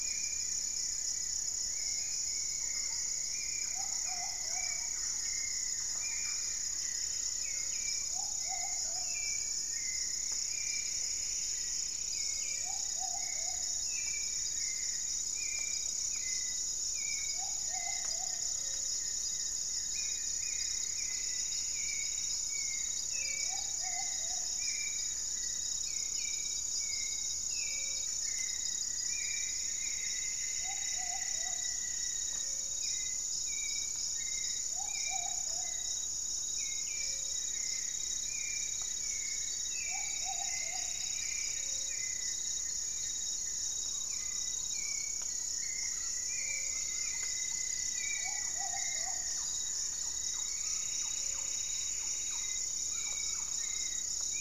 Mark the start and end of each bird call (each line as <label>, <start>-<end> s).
Goeldi's Antbird (Akletos goeldii), 0.0-2.2 s
Hauxwell's Thrush (Turdus hauxwelli), 0.0-54.4 s
Black-faced Antthrush (Formicarius analis), 1.5-7.7 s
Thrush-like Wren (Campylorhynchus turdinus), 2.4-6.6 s
Plumbeous Pigeon (Patagioenas plumbea), 3.5-24.7 s
Buff-breasted Wren (Cantorchilus leucotis), 6.3-8.0 s
Plumbeous Antbird (Myrmelastes hyperythrus), 9.2-12.4 s
Gray-fronted Dove (Leptotila rufaxilla), 12.0-12.7 s
Goeldi's Antbird (Akletos goeldii), 12.4-31.5 s
Gray-fronted Dove (Leptotila rufaxilla), 18.4-54.4 s
Plumbeous Antbird (Myrmelastes hyperythrus), 19.7-22.4 s
Thrush-like Wren (Campylorhynchus turdinus), 26.8-30.6 s
Rufous-fronted Antthrush (Formicarius rufifrons), 27.9-32.4 s
Plumbeous Antbird (Myrmelastes hyperythrus), 28.2-31.7 s
Plumbeous Pigeon (Patagioenas plumbea), 30.5-41.2 s
Goeldi's Antbird (Akletos goeldii), 36.7-43.9 s
Plumbeous Antbird (Myrmelastes hyperythrus), 38.8-42.1 s
Red-bellied Macaw (Orthopsittaca manilatus), 44.0-54.4 s
Rufous-fronted Antthrush (Formicarius rufifrons), 45.0-49.5 s
Thrush-like Wren (Campylorhynchus turdinus), 45.0-54.4 s
Plumbeous Pigeon (Patagioenas plumbea), 47.8-49.6 s
Plumbeous Antbird (Myrmelastes hyperythrus), 49.5-52.9 s